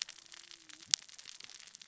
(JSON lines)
{"label": "biophony, cascading saw", "recorder": "SoundTrap 600 or HydroMoth"}